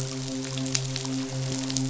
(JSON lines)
{"label": "biophony, midshipman", "recorder": "SoundTrap 500"}